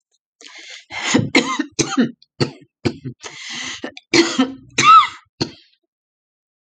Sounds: Cough